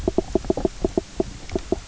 {"label": "biophony, knock croak", "recorder": "SoundTrap 300"}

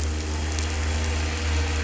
{"label": "anthrophony, boat engine", "recorder": "SoundTrap 300"}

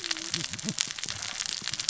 {"label": "biophony, cascading saw", "recorder": "SoundTrap 600 or HydroMoth"}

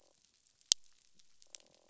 {"label": "biophony, croak", "recorder": "SoundTrap 500"}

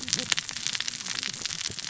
{"label": "biophony, cascading saw", "recorder": "SoundTrap 600 or HydroMoth"}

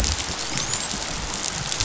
{"label": "biophony, dolphin", "recorder": "SoundTrap 500"}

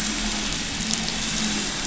{"label": "anthrophony, boat engine", "recorder": "SoundTrap 500"}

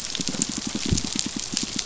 {"label": "biophony, pulse", "recorder": "SoundTrap 500"}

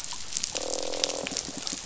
{"label": "biophony", "recorder": "SoundTrap 500"}
{"label": "biophony, croak", "recorder": "SoundTrap 500"}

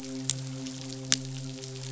{"label": "biophony, midshipman", "recorder": "SoundTrap 500"}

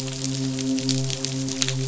{"label": "biophony, midshipman", "recorder": "SoundTrap 500"}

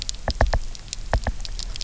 {"label": "biophony, knock", "recorder": "SoundTrap 300"}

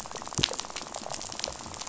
{"label": "biophony, rattle", "recorder": "SoundTrap 500"}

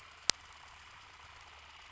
{"label": "anthrophony, boat engine", "recorder": "SoundTrap 300"}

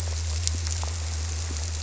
{"label": "biophony", "recorder": "SoundTrap 300"}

